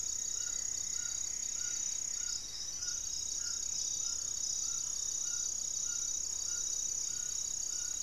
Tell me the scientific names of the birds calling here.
Xiphorhynchus obsoletus, Trogon ramonianus, Akletos goeldii, unidentified bird